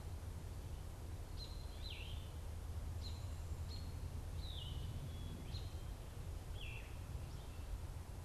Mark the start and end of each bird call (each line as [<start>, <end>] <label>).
[1.20, 8.24] American Robin (Turdus migratorius)
[1.50, 7.00] Yellow-throated Vireo (Vireo flavifrons)